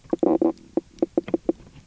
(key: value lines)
label: biophony, knock croak
recorder: SoundTrap 300